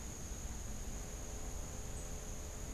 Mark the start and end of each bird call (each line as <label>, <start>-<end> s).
Tennessee Warbler (Leiothlypis peregrina), 1.8-2.7 s